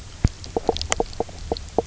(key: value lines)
label: biophony, knock croak
recorder: SoundTrap 300